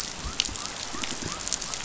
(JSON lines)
{"label": "biophony", "recorder": "SoundTrap 500"}